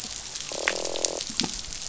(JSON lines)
{"label": "biophony, croak", "recorder": "SoundTrap 500"}